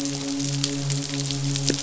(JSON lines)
{"label": "biophony, midshipman", "recorder": "SoundTrap 500"}